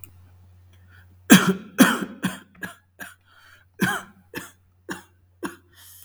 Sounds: Cough